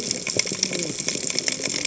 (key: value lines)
label: biophony, cascading saw
recorder: HydroMoth